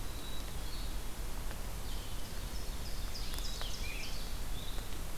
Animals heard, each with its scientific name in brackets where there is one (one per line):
Scarlet Tanager (Piranga olivacea)
Black-capped Chickadee (Poecile atricapillus)
Ovenbird (Seiurus aurocapilla)
Blue-headed Vireo (Vireo solitarius)